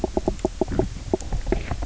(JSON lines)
{"label": "biophony, knock croak", "recorder": "SoundTrap 300"}